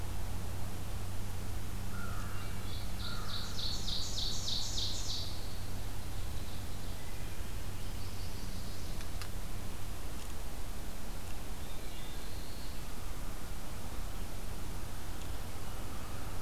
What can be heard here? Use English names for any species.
American Crow, Ovenbird, Black-throated Blue Warbler